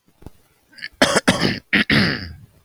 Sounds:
Throat clearing